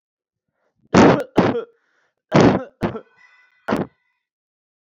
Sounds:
Cough